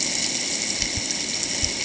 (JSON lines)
{"label": "ambient", "recorder": "HydroMoth"}